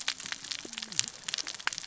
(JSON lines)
{"label": "biophony, cascading saw", "recorder": "SoundTrap 600 or HydroMoth"}